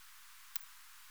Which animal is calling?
Poecilimon jonicus, an orthopteran